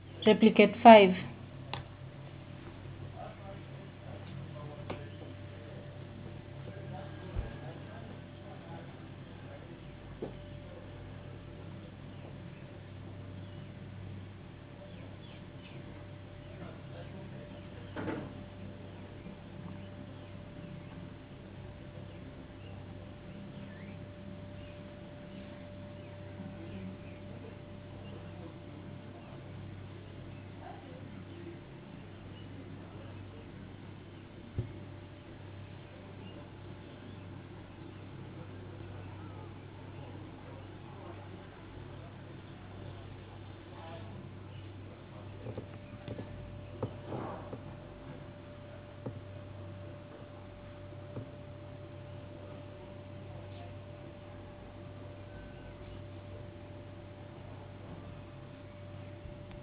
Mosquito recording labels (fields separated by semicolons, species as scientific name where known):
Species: no mosquito; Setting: insect culture